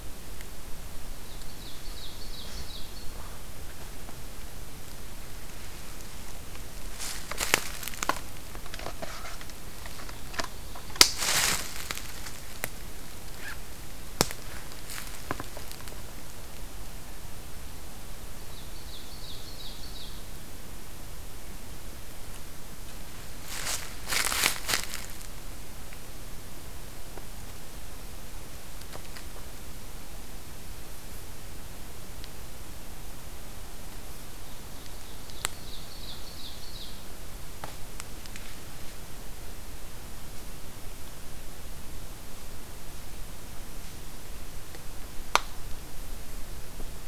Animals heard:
Ovenbird (Seiurus aurocapilla)

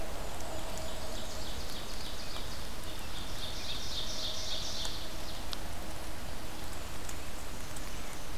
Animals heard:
Ovenbird (Seiurus aurocapilla), Black-and-white Warbler (Mniotilta varia)

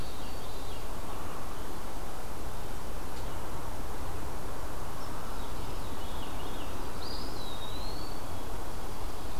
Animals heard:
Veery (Catharus fuscescens), Eastern Wood-Pewee (Contopus virens), White-throated Sparrow (Zonotrichia albicollis)

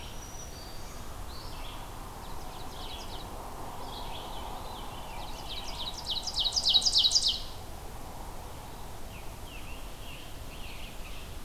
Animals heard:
Scarlet Tanager (Piranga olivacea), Red-eyed Vireo (Vireo olivaceus), Ovenbird (Seiurus aurocapilla), Black-throated Green Warbler (Setophaga virens), Veery (Catharus fuscescens)

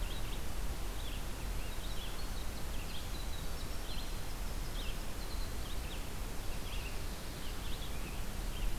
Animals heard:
Winter Wren (Troglodytes hiemalis), Red-eyed Vireo (Vireo olivaceus)

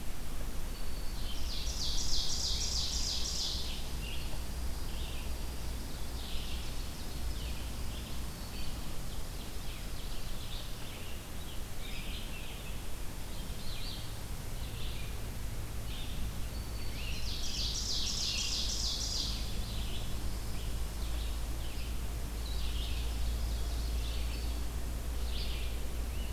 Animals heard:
Scarlet Tanager (Piranga olivacea), Ovenbird (Seiurus aurocapilla), Red-eyed Vireo (Vireo olivaceus), Black-throated Green Warbler (Setophaga virens)

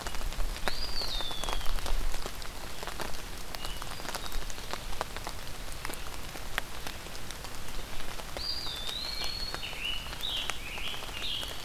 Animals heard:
Hermit Thrush (Catharus guttatus), Eastern Wood-Pewee (Contopus virens), Scarlet Tanager (Piranga olivacea)

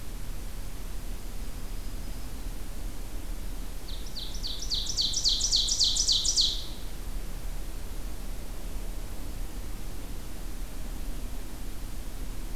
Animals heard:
Ovenbird (Seiurus aurocapilla), Black-throated Green Warbler (Setophaga virens)

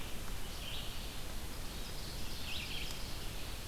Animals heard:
Ovenbird (Seiurus aurocapilla), Red-eyed Vireo (Vireo olivaceus)

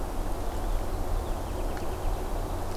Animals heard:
Purple Finch (Haemorhous purpureus)

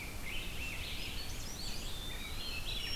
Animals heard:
Eastern Wood-Pewee (Contopus virens), Swainson's Thrush (Catharus ustulatus), Rose-breasted Grosbeak (Pheucticus ludovicianus)

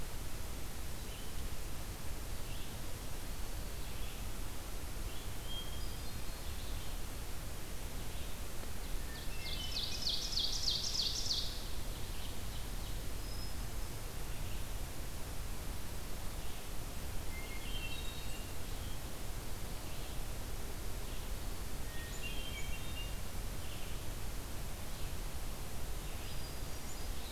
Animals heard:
Blue-headed Vireo (Vireo solitarius), Ovenbird (Seiurus aurocapilla), Red-eyed Vireo (Vireo olivaceus), Hermit Thrush (Catharus guttatus)

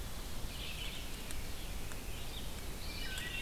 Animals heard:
Red-eyed Vireo (Vireo olivaceus), Eastern Wood-Pewee (Contopus virens), Ovenbird (Seiurus aurocapilla), Wood Thrush (Hylocichla mustelina)

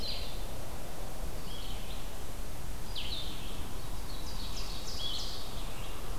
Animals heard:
Red-eyed Vireo (Vireo olivaceus), Blue-headed Vireo (Vireo solitarius), Ovenbird (Seiurus aurocapilla)

